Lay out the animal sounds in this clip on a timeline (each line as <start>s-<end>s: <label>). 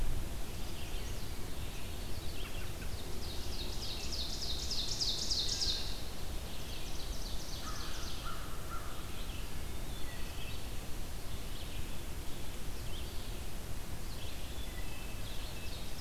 0.0s-15.7s: Red-eyed Vireo (Vireo olivaceus)
0.3s-1.4s: Chestnut-sided Warbler (Setophaga pensylvanica)
2.3s-3.0s: American Robin (Turdus migratorius)
3.1s-6.0s: Ovenbird (Seiurus aurocapilla)
6.6s-8.7s: Ovenbird (Seiurus aurocapilla)
7.5s-9.2s: American Crow (Corvus brachyrhynchos)
9.5s-10.9s: Eastern Wood-Pewee (Contopus virens)
14.5s-15.3s: Wood Thrush (Hylocichla mustelina)
15.3s-16.0s: Ovenbird (Seiurus aurocapilla)